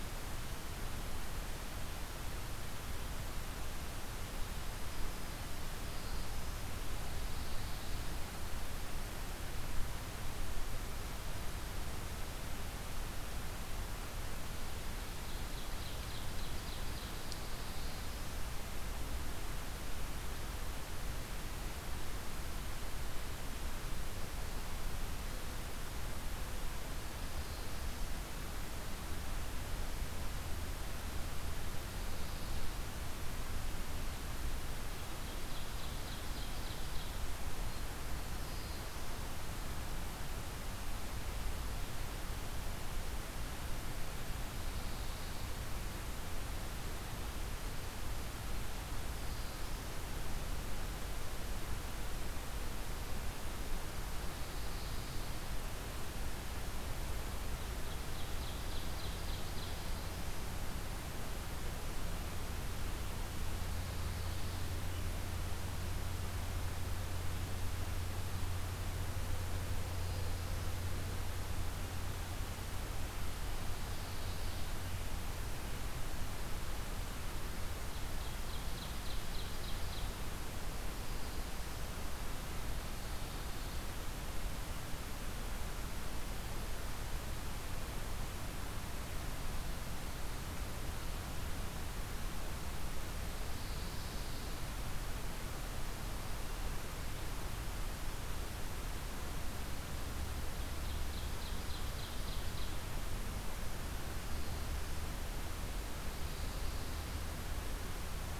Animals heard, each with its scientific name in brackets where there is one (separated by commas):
Black-throated Blue Warbler (Setophaga caerulescens), Ovenbird (Seiurus aurocapilla), Pine Warbler (Setophaga pinus), Black-throated Green Warbler (Setophaga virens)